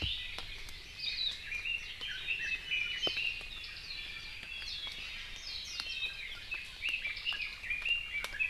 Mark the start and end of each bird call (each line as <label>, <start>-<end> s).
Hawaii Akepa (Loxops coccineus), 0.9-1.4 s
Red-billed Leiothrix (Leiothrix lutea), 0.9-3.5 s
Iiwi (Drepanis coccinea), 5.7-6.7 s
Red-billed Leiothrix (Leiothrix lutea), 6.7-8.5 s